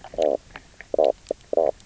{"label": "biophony, knock croak", "recorder": "SoundTrap 300"}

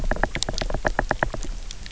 {"label": "biophony, knock", "recorder": "SoundTrap 300"}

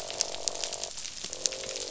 {"label": "biophony, croak", "recorder": "SoundTrap 500"}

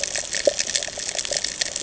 {"label": "ambient", "recorder": "HydroMoth"}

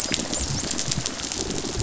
{"label": "biophony, rattle response", "recorder": "SoundTrap 500"}
{"label": "biophony", "recorder": "SoundTrap 500"}
{"label": "biophony, dolphin", "recorder": "SoundTrap 500"}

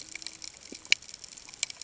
{"label": "ambient", "recorder": "HydroMoth"}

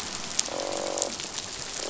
{"label": "biophony, croak", "recorder": "SoundTrap 500"}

